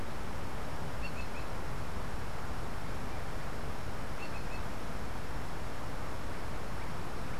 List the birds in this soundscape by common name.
Green Jay